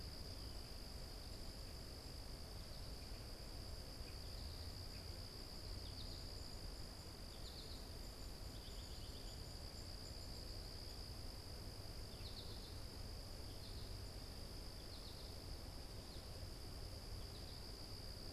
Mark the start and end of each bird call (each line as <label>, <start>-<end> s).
American Goldfinch (Spinus tristis), 5.6-18.2 s